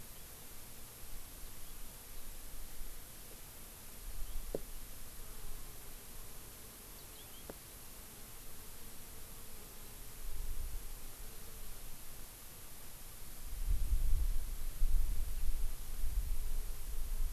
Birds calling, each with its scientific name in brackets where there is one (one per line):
House Finch (Haemorhous mexicanus)